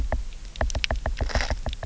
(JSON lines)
{"label": "biophony, knock", "recorder": "SoundTrap 300"}